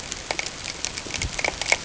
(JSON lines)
{"label": "ambient", "recorder": "HydroMoth"}